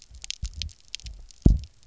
{"label": "biophony, double pulse", "recorder": "SoundTrap 300"}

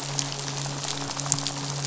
{"label": "biophony, midshipman", "recorder": "SoundTrap 500"}
{"label": "biophony, rattle", "recorder": "SoundTrap 500"}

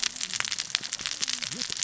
{"label": "biophony, cascading saw", "recorder": "SoundTrap 600 or HydroMoth"}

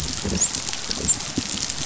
{"label": "biophony, dolphin", "recorder": "SoundTrap 500"}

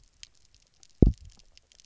{"label": "biophony, double pulse", "recorder": "SoundTrap 300"}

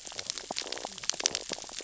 {"label": "biophony, sea urchins (Echinidae)", "recorder": "SoundTrap 600 or HydroMoth"}
{"label": "biophony, stridulation", "recorder": "SoundTrap 600 or HydroMoth"}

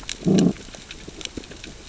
{"label": "biophony, growl", "recorder": "SoundTrap 600 or HydroMoth"}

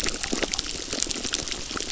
{"label": "biophony, crackle", "recorder": "SoundTrap 600"}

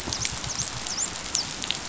{"label": "biophony, dolphin", "recorder": "SoundTrap 500"}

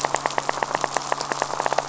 {"label": "biophony, rattle", "recorder": "SoundTrap 500"}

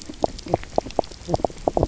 {"label": "biophony, knock croak", "recorder": "SoundTrap 300"}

